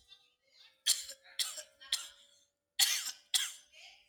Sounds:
Cough